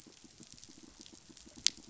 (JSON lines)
{"label": "biophony, pulse", "recorder": "SoundTrap 500"}